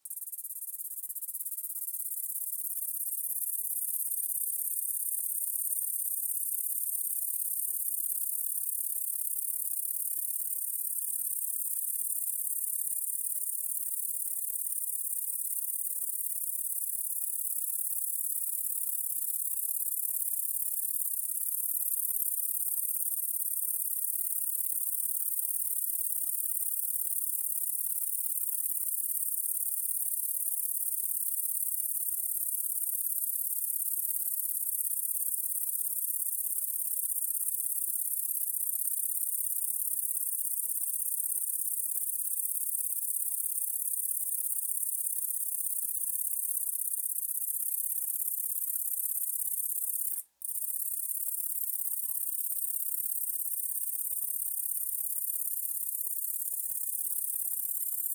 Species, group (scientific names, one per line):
Polysarcus denticauda
Orthoptera